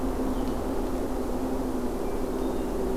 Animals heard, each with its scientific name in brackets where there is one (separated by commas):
Hermit Thrush (Catharus guttatus), Red-eyed Vireo (Vireo olivaceus)